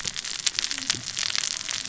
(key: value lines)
label: biophony, cascading saw
recorder: SoundTrap 600 or HydroMoth